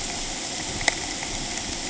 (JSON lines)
{"label": "ambient", "recorder": "HydroMoth"}